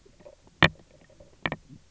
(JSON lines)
{"label": "biophony, knock croak", "recorder": "SoundTrap 300"}